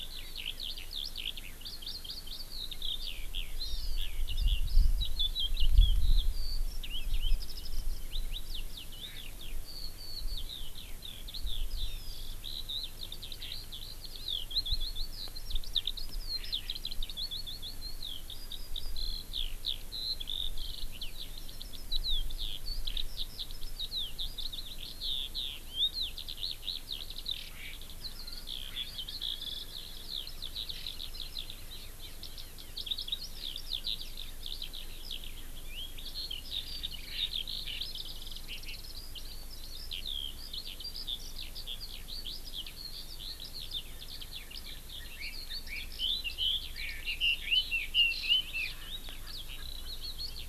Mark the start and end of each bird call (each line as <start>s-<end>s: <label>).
0.0s-50.5s: Eurasian Skylark (Alauda arvensis)
1.7s-2.5s: Hawaii Amakihi (Chlorodrepanis virens)
3.6s-4.0s: Hawaii Amakihi (Chlorodrepanis virens)
11.8s-12.3s: Hawaii Amakihi (Chlorodrepanis virens)
45.1s-48.7s: Red-billed Leiothrix (Leiothrix lutea)